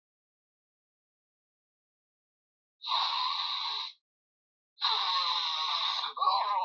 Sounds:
Sniff